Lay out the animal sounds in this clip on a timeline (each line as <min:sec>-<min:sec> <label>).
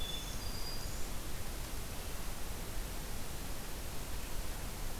0:00.0-0:01.2 Black-throated Green Warbler (Setophaga virens)